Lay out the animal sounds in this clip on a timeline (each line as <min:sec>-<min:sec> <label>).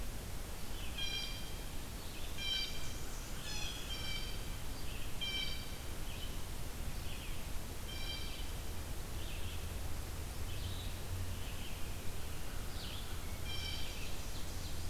0:00.0-0:07.5 Red-eyed Vireo (Vireo olivaceus)
0:00.8-0:01.4 Blue Jay (Cyanocitta cristata)
0:02.2-0:03.0 Blue Jay (Cyanocitta cristata)
0:02.3-0:03.9 Blackburnian Warbler (Setophaga fusca)
0:03.3-0:04.5 Blue Jay (Cyanocitta cristata)
0:05.1-0:05.9 Blue Jay (Cyanocitta cristata)
0:07.4-0:08.7 Blue Jay (Cyanocitta cristata)
0:08.1-0:14.9 Red-eyed Vireo (Vireo olivaceus)
0:12.1-0:13.8 American Crow (Corvus brachyrhynchos)
0:13.1-0:14.3 Blue Jay (Cyanocitta cristata)
0:13.4-0:14.9 Ovenbird (Seiurus aurocapilla)